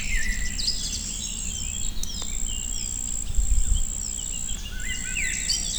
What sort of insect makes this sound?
orthopteran